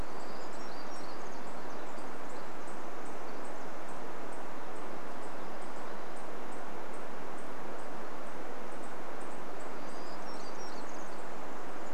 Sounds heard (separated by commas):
Townsend's Warbler call, Pacific Wren song, Townsend's Warbler song